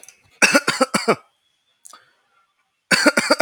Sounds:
Cough